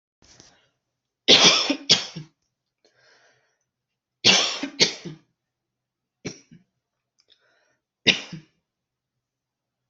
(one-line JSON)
{"expert_labels": [{"quality": "good", "cough_type": "dry", "dyspnea": false, "wheezing": false, "stridor": false, "choking": false, "congestion": false, "nothing": true, "diagnosis": "upper respiratory tract infection", "severity": "mild"}], "age": 38, "gender": "female", "respiratory_condition": false, "fever_muscle_pain": true, "status": "healthy"}